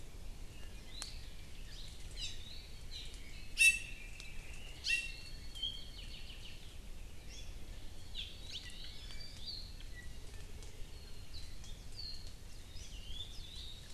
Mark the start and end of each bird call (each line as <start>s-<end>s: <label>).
0.8s-1.2s: Hawaii Creeper (Loxops mana)
2.0s-2.4s: Hawaii Creeper (Loxops mana)
2.8s-3.1s: Hawaii Creeper (Loxops mana)
3.4s-4.1s: Iiwi (Drepanis coccinea)
4.7s-5.2s: Iiwi (Drepanis coccinea)
5.0s-6.7s: Apapane (Himatione sanguinea)
8.0s-8.6s: Hawaii Creeper (Loxops mana)
9.3s-10.0s: Apapane (Himatione sanguinea)
11.8s-12.4s: Apapane (Himatione sanguinea)
12.9s-13.4s: Iiwi (Drepanis coccinea)
13.4s-13.9s: Apapane (Himatione sanguinea)